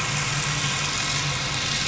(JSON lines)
{"label": "anthrophony, boat engine", "recorder": "SoundTrap 500"}